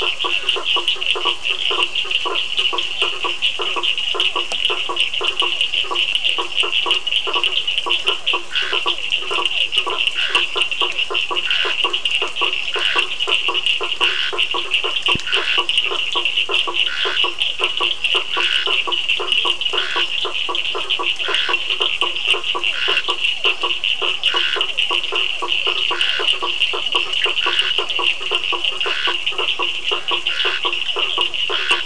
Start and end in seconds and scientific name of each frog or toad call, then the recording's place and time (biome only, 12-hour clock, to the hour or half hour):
0.0	3.4	Elachistocleis bicolor
0.0	13.1	Physalaemus cuvieri
0.0	31.8	Boana faber
0.0	31.8	Sphaenorhynchus surdus
8.3	31.8	Scinax perereca
16.1	31.4	Physalaemus cuvieri
24.9	29.1	Elachistocleis bicolor
Atlantic Forest, 7pm